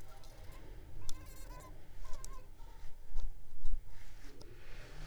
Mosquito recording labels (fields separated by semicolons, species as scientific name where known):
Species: Anopheles arabiensis; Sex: female; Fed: unfed; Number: one; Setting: cup